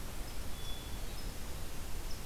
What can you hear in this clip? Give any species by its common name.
Hermit Thrush